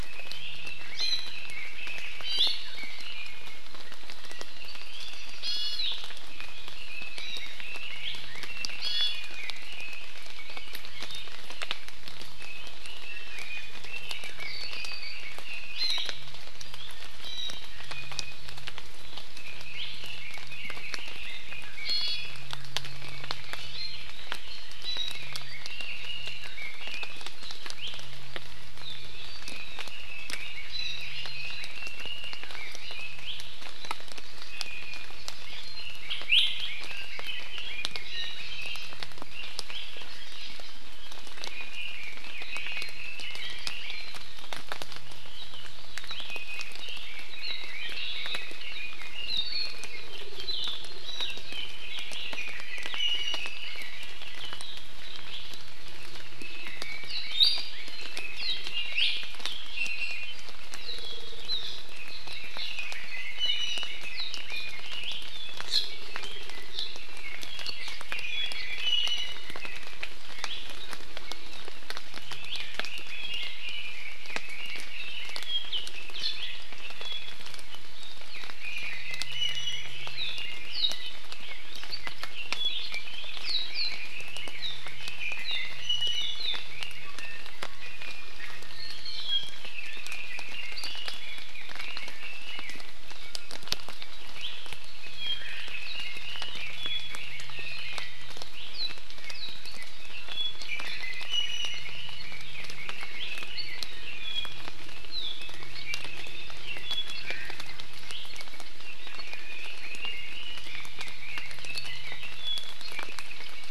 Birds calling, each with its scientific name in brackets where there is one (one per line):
Omao (Myadestes obscurus)
Apapane (Himatione sanguinea)
Hawaii Amakihi (Chlorodrepanis virens)
Iiwi (Drepanis coccinea)
Red-billed Leiothrix (Leiothrix lutea)